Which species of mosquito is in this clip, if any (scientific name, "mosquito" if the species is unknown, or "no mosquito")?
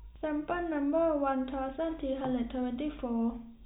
no mosquito